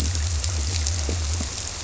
{"label": "biophony", "recorder": "SoundTrap 300"}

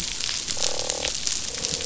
{"label": "biophony, croak", "recorder": "SoundTrap 500"}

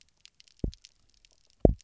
{"label": "biophony, double pulse", "recorder": "SoundTrap 300"}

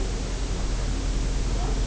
{"label": "biophony", "recorder": "SoundTrap 300"}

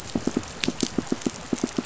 {"label": "biophony, pulse", "recorder": "SoundTrap 500"}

